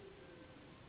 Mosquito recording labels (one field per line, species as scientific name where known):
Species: Anopheles gambiae s.s.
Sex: female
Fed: unfed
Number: one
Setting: insect culture